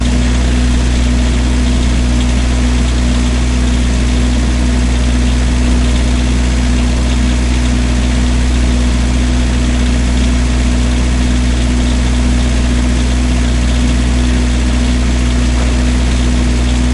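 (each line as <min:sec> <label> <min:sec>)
0:00.0 Loud mechanical sound of an idling non-electric vehicle. 0:16.9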